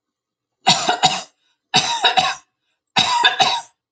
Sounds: Cough